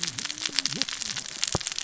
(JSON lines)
{"label": "biophony, cascading saw", "recorder": "SoundTrap 600 or HydroMoth"}